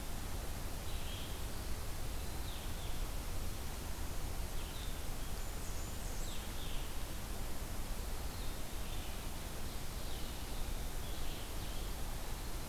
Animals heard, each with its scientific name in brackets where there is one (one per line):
Blackburnian Warbler (Setophaga fusca)
Red-eyed Vireo (Vireo olivaceus)